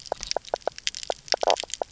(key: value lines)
label: biophony, knock croak
recorder: SoundTrap 300